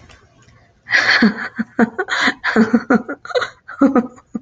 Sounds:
Laughter